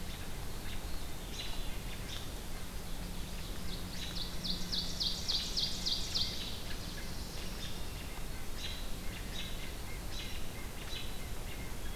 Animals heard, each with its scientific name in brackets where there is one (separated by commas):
Ovenbird (Seiurus aurocapilla), American Robin (Turdus migratorius), Chestnut-sided Warbler (Setophaga pensylvanica), White-breasted Nuthatch (Sitta carolinensis)